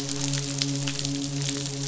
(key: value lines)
label: biophony, midshipman
recorder: SoundTrap 500